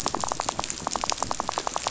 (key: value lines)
label: biophony, rattle
recorder: SoundTrap 500